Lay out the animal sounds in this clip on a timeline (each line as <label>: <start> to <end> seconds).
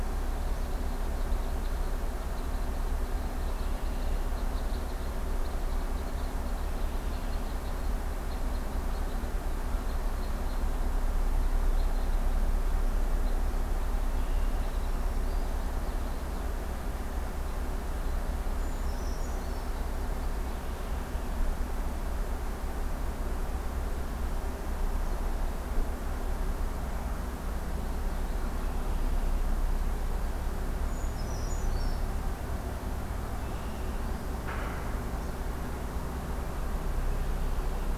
Red Crossbill (Loxia curvirostra): 0.0 to 21.0 seconds
Red-winged Blackbird (Agelaius phoeniceus): 3.3 to 4.3 seconds
Red-winged Blackbird (Agelaius phoeniceus): 6.5 to 7.5 seconds
Red-winged Blackbird (Agelaius phoeniceus): 14.1 to 14.8 seconds
Black-throated Green Warbler (Setophaga virens): 14.5 to 15.6 seconds
Brown Creeper (Certhia americana): 18.5 to 19.8 seconds
Red-winged Blackbird (Agelaius phoeniceus): 20.6 to 21.4 seconds
Red-winged Blackbird (Agelaius phoeniceus): 28.5 to 29.3 seconds
Brown Creeper (Certhia americana): 30.8 to 32.0 seconds
Red-winged Blackbird (Agelaius phoeniceus): 33.2 to 34.2 seconds